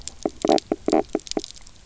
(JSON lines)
{"label": "biophony, knock croak", "recorder": "SoundTrap 300"}